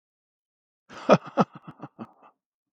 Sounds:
Laughter